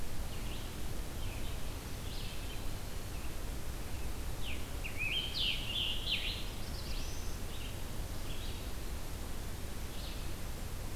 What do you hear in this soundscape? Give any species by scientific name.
Vireo olivaceus, Contopus virens, Piranga olivacea, Setophaga caerulescens, Vireo solitarius